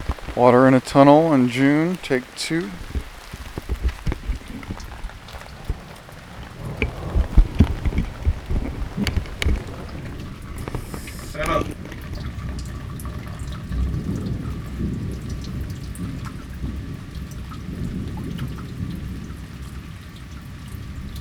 Is the person near water?
yes